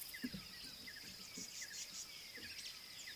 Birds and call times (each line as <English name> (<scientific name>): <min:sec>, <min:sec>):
Tawny-flanked Prinia (Prinia subflava): 0:01.6